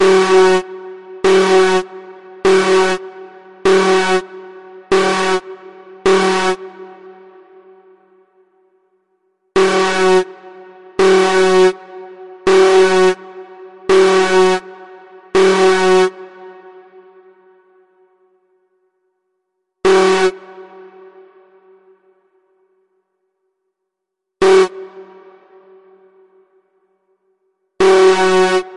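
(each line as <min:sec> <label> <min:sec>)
0:00.0 An alarm is echoing repeatedly. 0:06.6
0:06.6 An alarm sound fades out. 0:09.6
0:09.6 An alarm is echoing repeatedly. 0:16.2
0:16.2 An alarm sound fades out. 0:19.1
0:19.8 An alarm echoing and fading out. 0:27.8
0:27.8 An alarm echoes. 0:28.8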